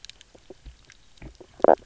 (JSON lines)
{"label": "biophony, knock croak", "recorder": "SoundTrap 300"}